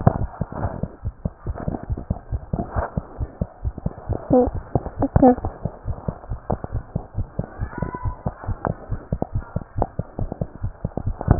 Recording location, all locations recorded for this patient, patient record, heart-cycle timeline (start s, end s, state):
pulmonary valve (PV)
aortic valve (AV)+pulmonary valve (PV)+tricuspid valve (TV)+mitral valve (MV)
#Age: Child
#Sex: Male
#Height: 94.0 cm
#Weight: 13.3 kg
#Pregnancy status: False
#Murmur: Absent
#Murmur locations: nan
#Most audible location: nan
#Systolic murmur timing: nan
#Systolic murmur shape: nan
#Systolic murmur grading: nan
#Systolic murmur pitch: nan
#Systolic murmur quality: nan
#Diastolic murmur timing: nan
#Diastolic murmur shape: nan
#Diastolic murmur grading: nan
#Diastolic murmur pitch: nan
#Diastolic murmur quality: nan
#Outcome: Normal
#Campaign: 2014 screening campaign
0.00	5.86	unannotated
5.86	5.96	S1
5.96	6.08	systole
6.08	6.16	S2
6.16	6.30	diastole
6.30	6.40	S1
6.40	6.50	systole
6.50	6.58	S2
6.58	6.74	diastole
6.74	6.84	S1
6.84	6.94	systole
6.94	7.02	S2
7.02	7.16	diastole
7.16	7.28	S1
7.28	7.38	systole
7.38	7.46	S2
7.46	7.60	diastole
7.60	7.70	S1
7.70	7.80	systole
7.80	7.90	S2
7.90	8.04	diastole
8.04	8.16	S1
8.16	8.26	systole
8.26	8.34	S2
8.34	8.48	diastole
8.48	8.58	S1
8.58	8.66	systole
8.66	8.76	S2
8.76	8.90	diastole
8.90	9.00	S1
9.00	9.12	systole
9.12	9.20	S2
9.20	9.34	diastole
9.34	9.44	S1
9.44	9.54	systole
9.54	9.62	S2
9.62	9.78	diastole
9.78	9.88	S1
9.88	9.98	systole
9.98	10.06	S2
10.06	10.20	diastole
10.20	10.30	S1
10.30	10.40	systole
10.40	10.50	S2
10.50	10.64	diastole
10.64	10.72	S1
10.72	10.84	systole
10.84	10.90	S2
10.90	11.06	diastole
11.06	11.39	unannotated